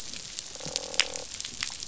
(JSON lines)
{"label": "biophony, croak", "recorder": "SoundTrap 500"}